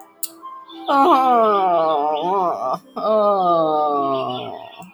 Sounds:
Sigh